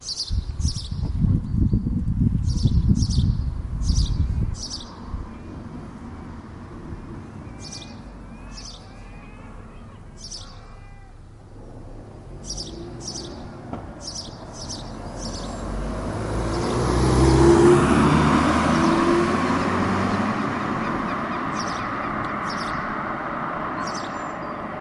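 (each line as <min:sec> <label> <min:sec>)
0:00.0 Birds are singing. 0:05.4
0:01.2 Strong wind is blowing. 0:04.5
0:04.3 Animals can be heard in the background. 0:11.6
0:07.6 Birds are singing. 0:08.8
0:09.0 A crow caws. 0:11.2
0:10.2 Birds are singing. 0:10.5
0:11.6 A car is approaching. 0:16.4
0:12.3 A birdsong is heard in the background. 0:24.8
0:16.4 A car passes by. 0:19.4
0:19.4 A car moving away fades. 0:24.8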